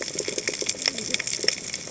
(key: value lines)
label: biophony, cascading saw
recorder: HydroMoth